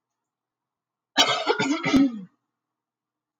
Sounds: Throat clearing